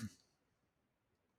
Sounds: Cough